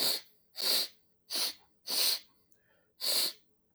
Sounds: Sniff